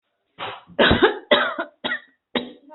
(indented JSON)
{
  "expert_labels": [
    {
      "quality": "ok",
      "cough_type": "dry",
      "dyspnea": false,
      "wheezing": false,
      "stridor": false,
      "choking": false,
      "congestion": false,
      "nothing": true,
      "diagnosis": "COVID-19",
      "severity": "unknown"
    }
  ],
  "age": 50,
  "gender": "female",
  "respiratory_condition": false,
  "fever_muscle_pain": false,
  "status": "healthy"
}